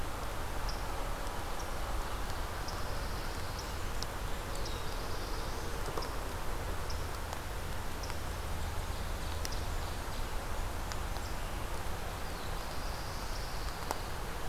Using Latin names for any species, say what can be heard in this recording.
Setophaga pinus, Setophaga fusca, Setophaga caerulescens